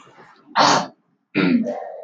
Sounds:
Throat clearing